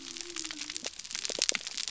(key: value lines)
label: biophony
recorder: SoundTrap 300